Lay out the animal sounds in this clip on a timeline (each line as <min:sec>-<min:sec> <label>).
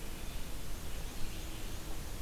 0:00.1-0:02.2 Black-and-white Warbler (Mniotilta varia)